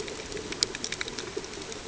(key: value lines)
label: ambient
recorder: HydroMoth